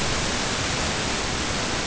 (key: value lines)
label: ambient
recorder: HydroMoth